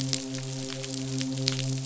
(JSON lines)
{"label": "biophony, midshipman", "recorder": "SoundTrap 500"}